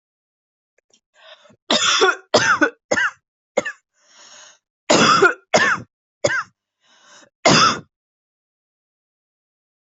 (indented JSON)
{
  "expert_labels": [
    {
      "quality": "ok",
      "cough_type": "dry",
      "dyspnea": false,
      "wheezing": false,
      "stridor": false,
      "choking": false,
      "congestion": false,
      "nothing": true,
      "diagnosis": "lower respiratory tract infection",
      "severity": "unknown"
    }
  ],
  "age": 25,
  "gender": "female",
  "respiratory_condition": false,
  "fever_muscle_pain": false,
  "status": "symptomatic"
}